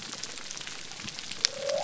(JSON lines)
{"label": "biophony", "recorder": "SoundTrap 300"}